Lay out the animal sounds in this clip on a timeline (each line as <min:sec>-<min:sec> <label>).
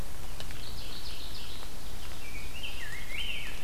0:00.4-0:01.7 Mourning Warbler (Geothlypis philadelphia)
0:02.1-0:03.6 Rose-breasted Grosbeak (Pheucticus ludovicianus)